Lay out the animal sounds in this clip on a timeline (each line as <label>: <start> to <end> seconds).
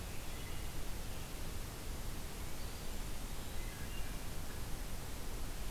Wood Thrush (Hylocichla mustelina): 3.4 to 4.2 seconds